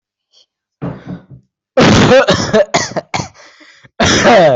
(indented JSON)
{
  "expert_labels": [
    {
      "quality": "good",
      "cough_type": "wet",
      "dyspnea": false,
      "wheezing": false,
      "stridor": false,
      "choking": false,
      "congestion": false,
      "nothing": true,
      "diagnosis": "upper respiratory tract infection",
      "severity": "mild"
    }
  ],
  "gender": "male",
  "respiratory_condition": false,
  "fever_muscle_pain": false,
  "status": "COVID-19"
}